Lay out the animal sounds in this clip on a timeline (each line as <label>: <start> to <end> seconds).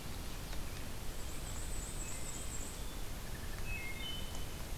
Black-and-white Warbler (Mniotilta varia): 1.1 to 2.8 seconds
Wood Thrush (Hylocichla mustelina): 1.9 to 2.5 seconds
Wood Thrush (Hylocichla mustelina): 3.2 to 4.6 seconds